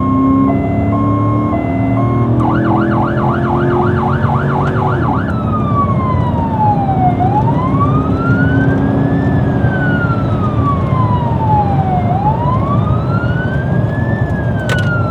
does a switch of some kind get hit at the end?
yes